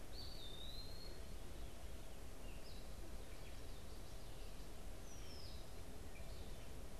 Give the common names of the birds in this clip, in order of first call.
Eastern Wood-Pewee, unidentified bird, Red-winged Blackbird